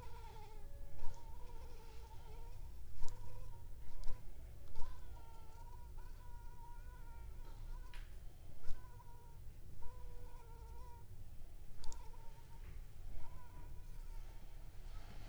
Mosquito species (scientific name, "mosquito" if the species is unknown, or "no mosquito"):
Anopheles funestus s.s.